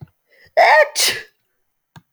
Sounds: Sneeze